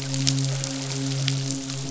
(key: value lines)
label: biophony, midshipman
recorder: SoundTrap 500